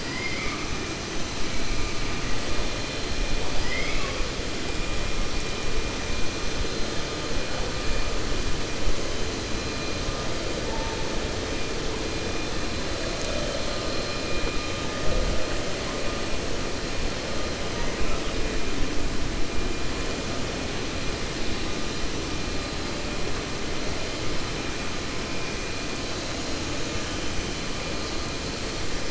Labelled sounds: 0.0	0.7	killer whale, 1.0 to 3.1 kHz
3.5	4.2	killer whale, 0.56 to 5.1 kHz

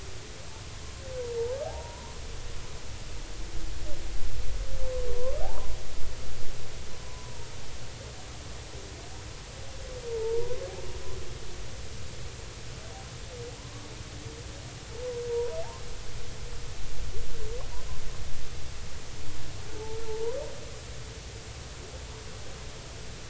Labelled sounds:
1.6	2.1	humpback whale, 0.80 to 1.1 kHz
5.1	5.7	humpback whale, 0.80 to 1.1 kHz
7.0	7.5	humpback whale, 0.90 to 1.1 kHz
10.1	10.7	humpback whale, 0.83 to 1.2 kHz
15.3	15.6	humpback whale, 0.90 to 1.0 kHz
19.8	20.4	humpback whale, 0.83 to 1.1 kHz

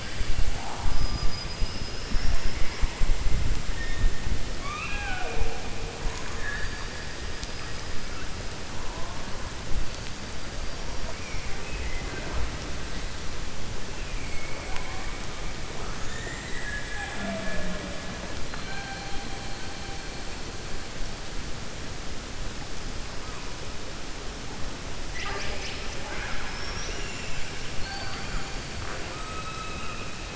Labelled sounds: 4.5	5.6	killer whale, 0.44 to 4.6 kHz
18.4	19.2	killer whale, 0.77 to 4.5 kHz
25.9	27.5	killer whale, 0.54 to 3.8 kHz

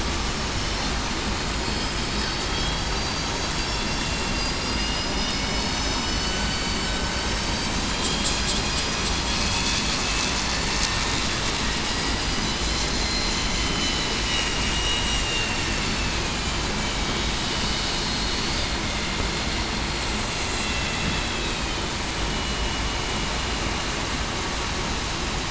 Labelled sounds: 0.5	0.9	vessel noise, 5.3 to 5.5 kHz
1.6	3.2	vessel noise, 4.5 to 5.1 kHz
4.6	5.1	vessel noise, 2.8 to 2.9 kHz
5.3	6.2	vessel noise, 2.9 to 6.0 kHz
7.2	7.6	vessel noise, 6.1 to 6.2 kHz
7.9	8.3	vessel noise, 3.2 to 3.3 kHz
9.3	9.7	vessel noise, 2.5 to 2.6 kHz
10.3	10.7	vessel noise, 7.0 to 7.2 kHz
12.6	13.4	vessel noise, 4.0 to 4.2 kHz
13.7	15.6	vessel noise, 2.7 to 5.8 kHz
15.9	16.4	vessel noise, 2.4 to 2.7 kHz
22.3	22.6	vessel noise, 2.9 to 3.0 kHz

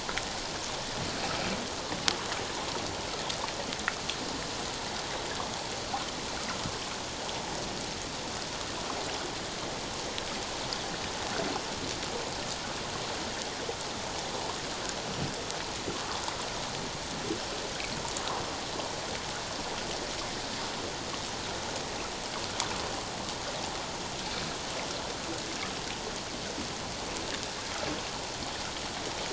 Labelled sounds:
15.9	16.2	water noise, 1.0 to 1.3 kHz

